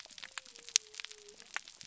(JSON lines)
{"label": "biophony", "recorder": "SoundTrap 300"}